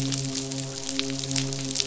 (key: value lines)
label: biophony, midshipman
recorder: SoundTrap 500